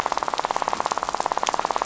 {"label": "biophony, rattle", "recorder": "SoundTrap 500"}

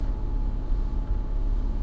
{"label": "anthrophony, boat engine", "recorder": "SoundTrap 300"}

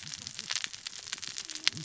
{"label": "biophony, cascading saw", "recorder": "SoundTrap 600 or HydroMoth"}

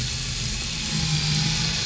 {"label": "anthrophony, boat engine", "recorder": "SoundTrap 500"}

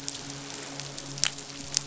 {"label": "biophony, midshipman", "recorder": "SoundTrap 500"}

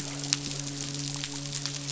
{"label": "biophony, midshipman", "recorder": "SoundTrap 500"}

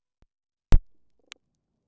{"label": "biophony", "recorder": "SoundTrap 300"}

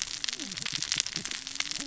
{"label": "biophony, cascading saw", "recorder": "SoundTrap 600 or HydroMoth"}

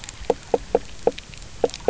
{"label": "biophony, knock croak", "recorder": "SoundTrap 300"}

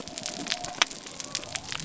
{"label": "biophony", "recorder": "SoundTrap 300"}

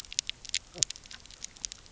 {"label": "biophony, knock croak", "recorder": "SoundTrap 300"}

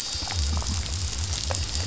{"label": "biophony", "recorder": "SoundTrap 500"}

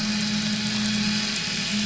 {"label": "anthrophony, boat engine", "recorder": "SoundTrap 500"}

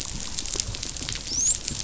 {"label": "biophony, dolphin", "recorder": "SoundTrap 500"}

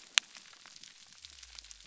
{"label": "biophony", "recorder": "SoundTrap 300"}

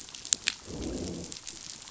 {"label": "biophony, growl", "recorder": "SoundTrap 500"}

